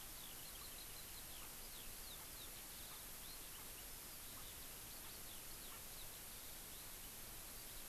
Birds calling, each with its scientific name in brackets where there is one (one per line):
Erckel's Francolin (Pternistis erckelii)
Eurasian Skylark (Alauda arvensis)